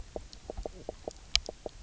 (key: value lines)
label: biophony, knock croak
recorder: SoundTrap 300